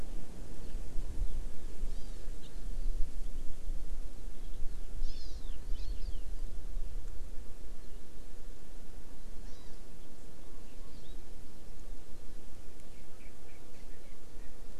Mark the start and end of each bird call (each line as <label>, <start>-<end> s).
Hawaii Amakihi (Chlorodrepanis virens), 1.9-2.3 s
Hawaii Amakihi (Chlorodrepanis virens), 5.0-5.4 s
Hawaii Amakihi (Chlorodrepanis virens), 5.8-6.2 s
Hawaii Amakihi (Chlorodrepanis virens), 9.5-9.8 s
Erckel's Francolin (Pternistis erckelii), 13.2-13.6 s
Erckel's Francolin (Pternistis erckelii), 14.4-14.5 s